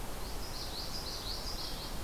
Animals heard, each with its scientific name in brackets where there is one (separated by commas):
Hermit Thrush (Catharus guttatus), Common Yellowthroat (Geothlypis trichas)